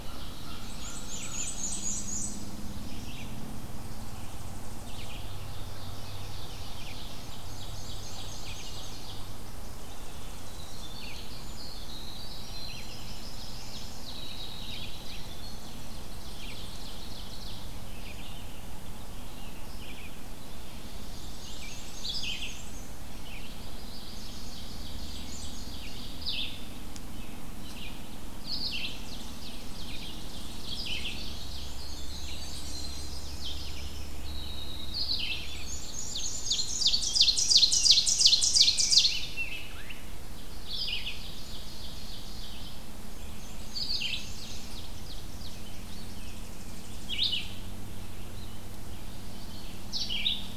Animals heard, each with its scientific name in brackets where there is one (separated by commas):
Winter Wren (Troglodytes hiemalis), Ovenbird (Seiurus aurocapilla), Yellow Warbler (Setophaga petechia), American Crow (Corvus brachyrhynchos), Rose-breasted Grosbeak (Pheucticus ludovicianus), Tennessee Warbler (Leiothlypis peregrina), Red-eyed Vireo (Vireo olivaceus), Black-and-white Warbler (Mniotilta varia)